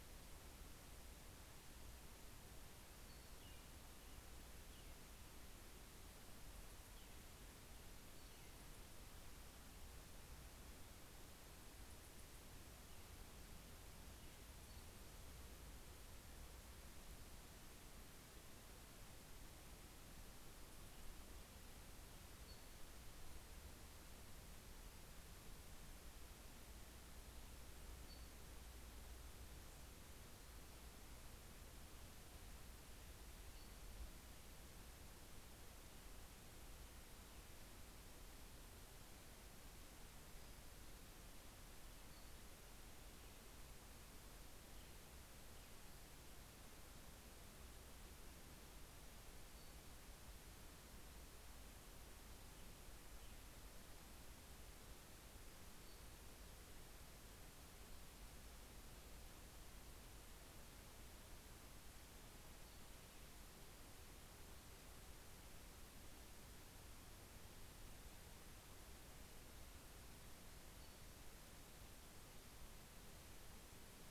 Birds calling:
American Robin (Turdus migratorius)
Brown Creeper (Certhia americana)

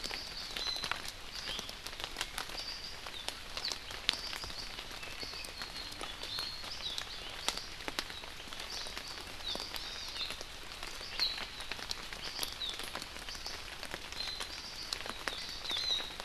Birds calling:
Hawaii Amakihi (Chlorodrepanis virens)

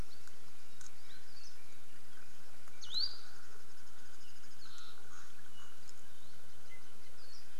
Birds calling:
Hawaii Akepa (Loxops coccineus)

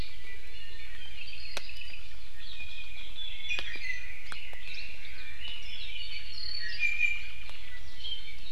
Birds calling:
Apapane (Himatione sanguinea)
Iiwi (Drepanis coccinea)
Red-billed Leiothrix (Leiothrix lutea)

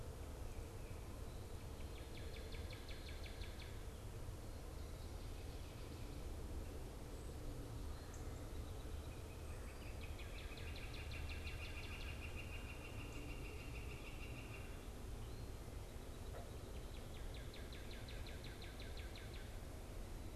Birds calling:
Northern Cardinal (Cardinalis cardinalis)
Northern Flicker (Colaptes auratus)

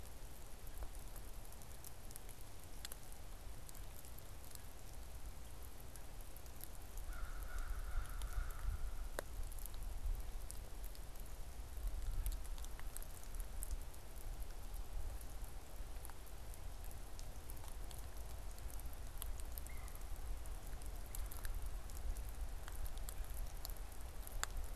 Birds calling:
Red-bellied Woodpecker (Melanerpes carolinus)
American Crow (Corvus brachyrhynchos)

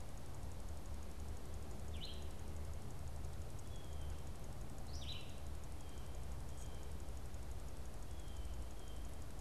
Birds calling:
Red-eyed Vireo (Vireo olivaceus)
Blue Jay (Cyanocitta cristata)

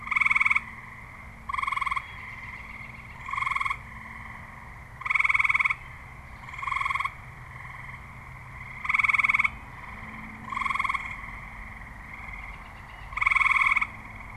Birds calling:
American Robin (Turdus migratorius)

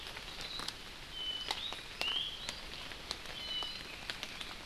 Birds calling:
Iiwi (Drepanis coccinea)
Apapane (Himatione sanguinea)

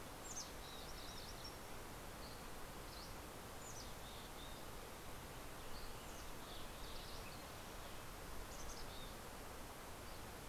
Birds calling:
Red-breasted Nuthatch (Sitta canadensis)
Dusky Flycatcher (Empidonax oberholseri)
Green-tailed Towhee (Pipilo chlorurus)
Mountain Chickadee (Poecile gambeli)

